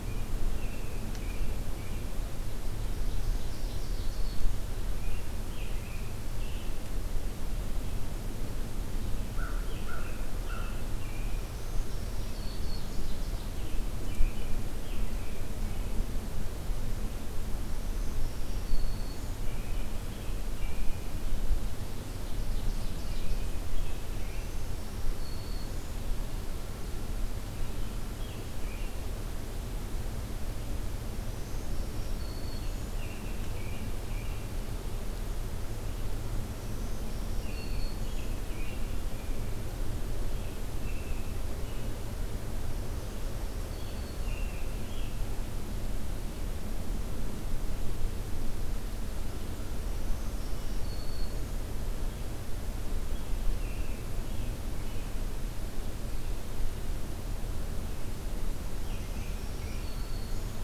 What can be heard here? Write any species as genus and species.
Turdus migratorius, Seiurus aurocapilla, Setophaga virens, Corvus brachyrhynchos